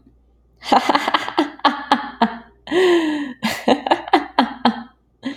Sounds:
Laughter